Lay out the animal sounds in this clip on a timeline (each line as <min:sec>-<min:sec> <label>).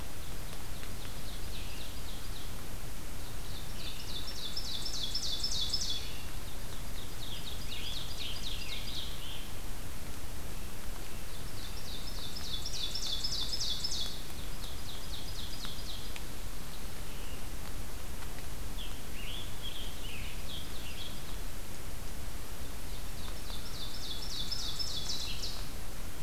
0:00.3-0:02.9 Ovenbird (Seiurus aurocapilla)
0:01.3-0:06.4 Scarlet Tanager (Piranga olivacea)
0:03.5-0:06.1 Ovenbird (Seiurus aurocapilla)
0:06.4-0:09.4 Ovenbird (Seiurus aurocapilla)
0:07.2-0:09.6 Scarlet Tanager (Piranga olivacea)
0:11.1-0:16.3 Ovenbird (Seiurus aurocapilla)
0:12.6-0:17.5 Scarlet Tanager (Piranga olivacea)
0:18.6-0:20.8 Scarlet Tanager (Piranga olivacea)
0:20.3-0:21.5 Ovenbird (Seiurus aurocapilla)
0:22.8-0:25.6 Ovenbird (Seiurus aurocapilla)